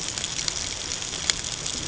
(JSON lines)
{"label": "ambient", "recorder": "HydroMoth"}